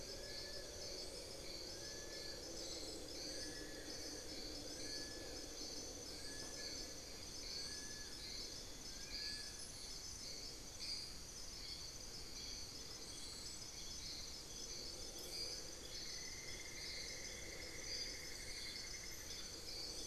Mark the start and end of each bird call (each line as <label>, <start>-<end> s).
Long-billed Woodcreeper (Nasica longirostris), 0.0-10.0 s
Amazonian Barred-Woodcreeper (Dendrocolaptes certhia), 3.0-4.3 s
Hauxwell's Thrush (Turdus hauxwelli), 10.1-14.9 s
Cinnamon-throated Woodcreeper (Dendrexetastes rufigula), 15.4-20.0 s